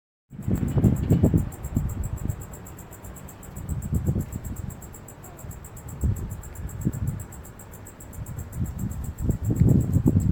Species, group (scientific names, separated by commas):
Decticus albifrons, Orthoptera